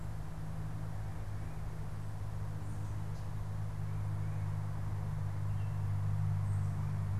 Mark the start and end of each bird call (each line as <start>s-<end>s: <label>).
0.0s-7.2s: Tufted Titmouse (Baeolophus bicolor)